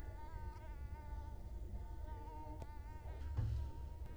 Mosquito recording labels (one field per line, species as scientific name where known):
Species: Culex quinquefasciatus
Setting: cup